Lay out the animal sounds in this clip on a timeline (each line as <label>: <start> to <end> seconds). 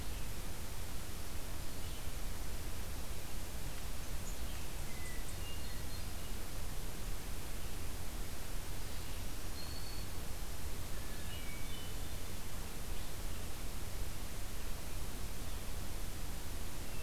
Red-eyed Vireo (Vireo olivaceus): 0.0 to 17.0 seconds
Hermit Thrush (Catharus guttatus): 4.7 to 6.4 seconds
Black-throated Green Warbler (Setophaga virens): 8.8 to 10.1 seconds
Hermit Thrush (Catharus guttatus): 11.2 to 12.5 seconds